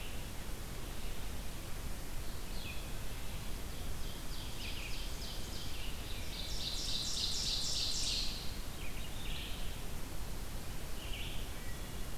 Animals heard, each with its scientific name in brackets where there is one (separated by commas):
Red-eyed Vireo (Vireo olivaceus), Ovenbird (Seiurus aurocapilla), Hermit Thrush (Catharus guttatus)